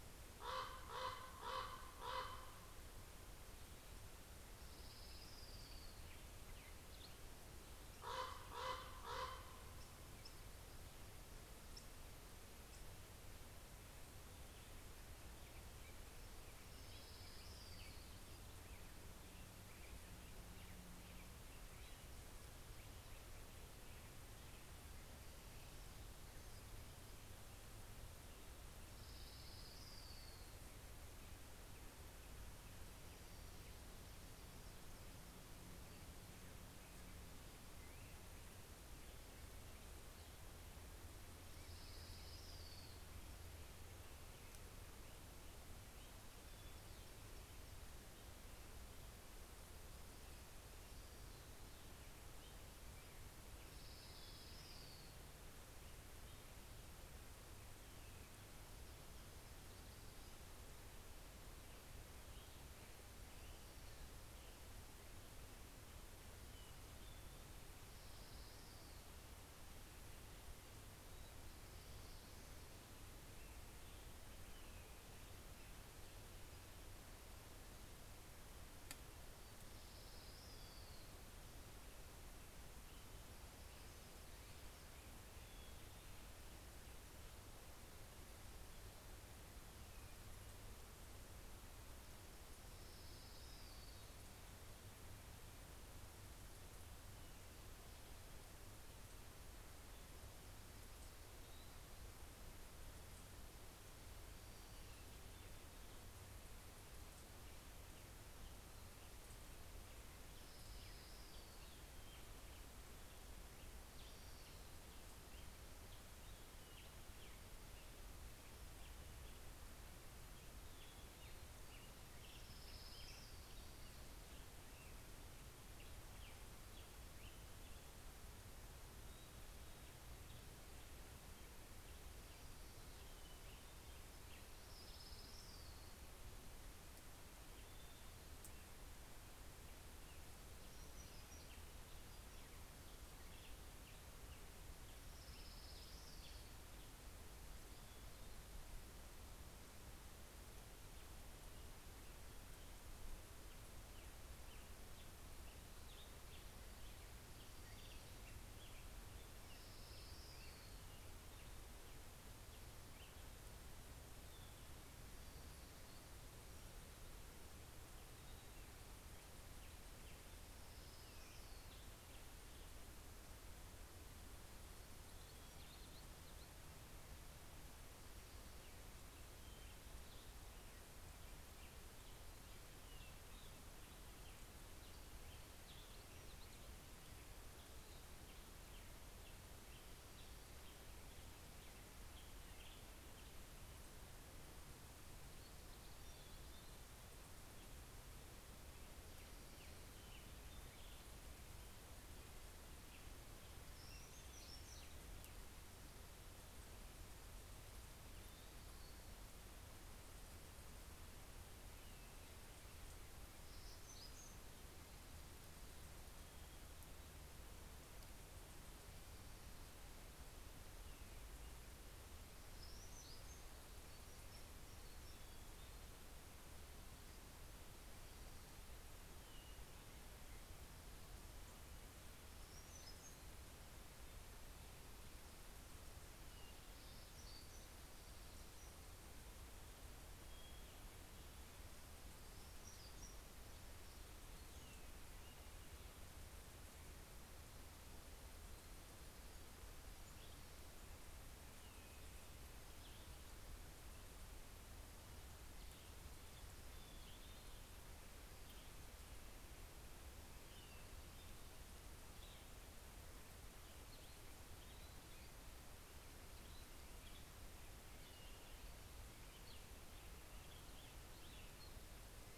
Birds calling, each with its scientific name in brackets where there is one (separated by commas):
Orange-crowned Warbler (Leiothlypis celata), Cassin's Vireo (Vireo cassinii), Western Tanager (Piranga ludoviciana), Hermit Thrush (Catharus guttatus), Common Raven (Corvus corax), Black-headed Grosbeak (Pheucticus melanocephalus), Hermit Warbler (Setophaga occidentalis)